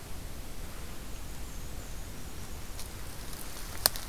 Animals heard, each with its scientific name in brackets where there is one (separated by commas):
Black-and-white Warbler (Mniotilta varia)